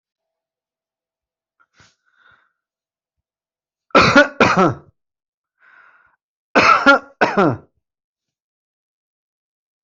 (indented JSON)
{
  "expert_labels": [
    {
      "quality": "good",
      "cough_type": "dry",
      "dyspnea": false,
      "wheezing": false,
      "stridor": false,
      "choking": false,
      "congestion": false,
      "nothing": true,
      "diagnosis": "COVID-19",
      "severity": "mild"
    }
  ],
  "age": 38,
  "gender": "male",
  "respiratory_condition": false,
  "fever_muscle_pain": false,
  "status": "healthy"
}